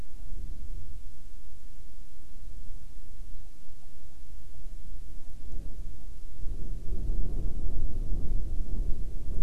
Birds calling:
Hawaiian Petrel (Pterodroma sandwichensis)

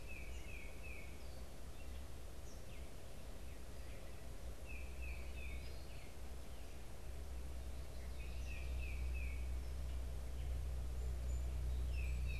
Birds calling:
Eastern Kingbird (Tyrannus tyrannus), Tufted Titmouse (Baeolophus bicolor)

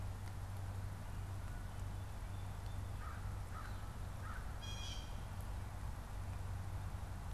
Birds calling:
Blue Jay (Cyanocitta cristata), American Crow (Corvus brachyrhynchos)

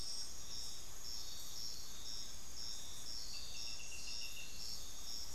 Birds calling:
Little Tinamou (Crypturellus soui)

